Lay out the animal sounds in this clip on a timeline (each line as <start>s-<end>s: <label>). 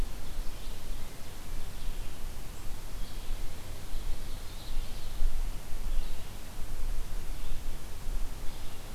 0.0s-8.9s: Red-eyed Vireo (Vireo olivaceus)
3.9s-5.2s: Ovenbird (Seiurus aurocapilla)